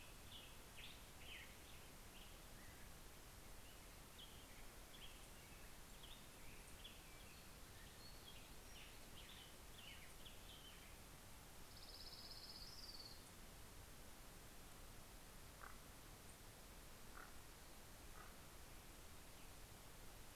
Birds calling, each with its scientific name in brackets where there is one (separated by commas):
Common Raven (Corvus corax), Orange-crowned Warbler (Leiothlypis celata), Black-headed Grosbeak (Pheucticus melanocephalus)